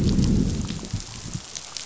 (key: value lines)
label: biophony, growl
recorder: SoundTrap 500